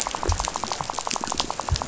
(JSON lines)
{"label": "biophony, rattle", "recorder": "SoundTrap 500"}